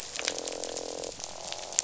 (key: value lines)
label: biophony, croak
recorder: SoundTrap 500